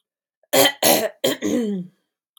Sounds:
Throat clearing